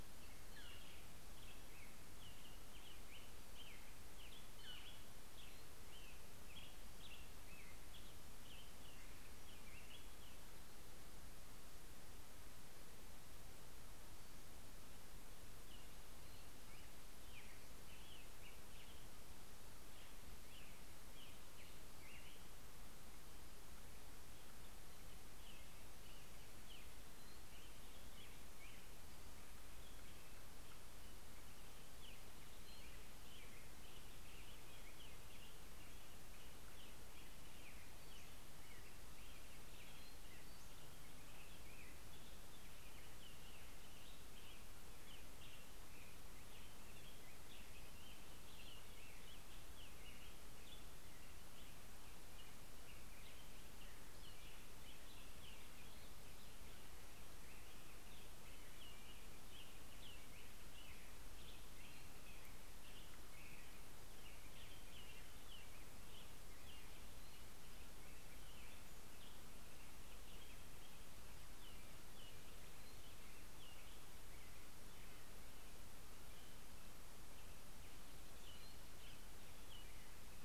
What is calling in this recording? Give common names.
Black-headed Grosbeak, Northern Flicker, Pacific-slope Flycatcher